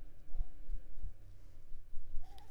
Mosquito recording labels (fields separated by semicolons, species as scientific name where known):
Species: Anopheles coustani; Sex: female; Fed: unfed; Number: one; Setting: cup